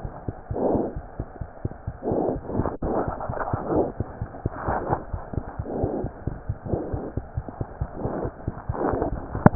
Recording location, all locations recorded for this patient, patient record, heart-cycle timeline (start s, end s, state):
pulmonary valve (PV)
pulmonary valve (PV)+tricuspid valve (TV)+mitral valve (MV)
#Age: Infant
#Sex: Female
#Height: 73.0 cm
#Weight: 8.7 kg
#Pregnancy status: False
#Murmur: Absent
#Murmur locations: nan
#Most audible location: nan
#Systolic murmur timing: nan
#Systolic murmur shape: nan
#Systolic murmur grading: nan
#Systolic murmur pitch: nan
#Systolic murmur quality: nan
#Diastolic murmur timing: nan
#Diastolic murmur shape: nan
#Diastolic murmur grading: nan
#Diastolic murmur pitch: nan
#Diastolic murmur quality: nan
#Outcome: Normal
#Campaign: 2015 screening campaign
0.00	0.94	unannotated
0.94	1.04	S1
1.04	1.17	systole
1.17	1.27	S2
1.27	1.38	diastole
1.38	1.47	S1
1.47	1.62	systole
1.62	1.72	S2
1.72	1.84	diastole
1.84	1.94	S1
1.94	4.15	unannotated
4.15	4.28	S1
4.28	4.40	systole
4.40	4.53	S2
4.53	4.66	diastole
4.66	4.78	S1
4.78	4.88	systole
4.88	5.00	S2
5.00	5.12	diastole
5.12	5.21	S1
5.21	5.34	systole
5.34	5.42	S2
5.42	5.55	diastole
5.55	5.68	S1
5.68	5.81	systole
5.81	5.89	S2
5.89	6.01	diastole
6.01	6.11	S1
6.11	6.25	systole
6.25	6.34	S2
6.34	6.47	diastole
6.47	6.56	S1
6.56	6.70	systole
6.70	6.81	S2
6.81	6.92	diastole
6.92	7.02	S1
7.02	7.14	systole
7.14	7.24	S2
7.24	7.34	diastole
7.34	7.43	S1
7.43	7.57	systole
7.57	7.67	S2
7.67	7.78	diastole
7.78	7.87	S1
7.87	8.02	systole
8.02	8.10	S2
8.10	9.55	unannotated